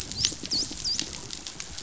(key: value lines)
label: biophony
recorder: SoundTrap 500

label: biophony, dolphin
recorder: SoundTrap 500